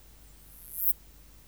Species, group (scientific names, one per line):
Poecilimon hoelzeli
Orthoptera